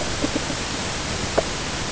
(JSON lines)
{"label": "ambient", "recorder": "HydroMoth"}